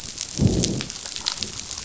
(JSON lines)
{"label": "biophony, growl", "recorder": "SoundTrap 500"}